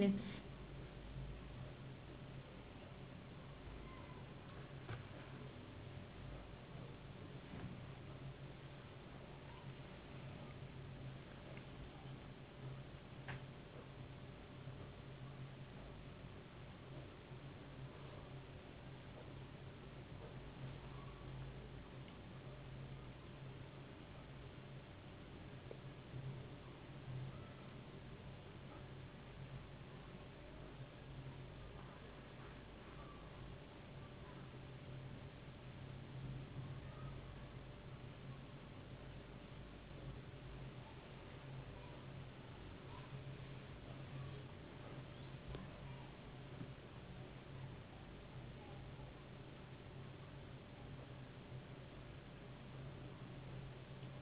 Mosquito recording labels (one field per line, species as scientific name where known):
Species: no mosquito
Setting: insect culture